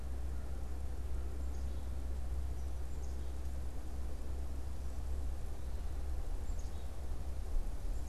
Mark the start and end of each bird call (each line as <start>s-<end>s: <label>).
0.0s-1.9s: American Crow (Corvus brachyrhynchos)
0.0s-8.1s: Black-capped Chickadee (Poecile atricapillus)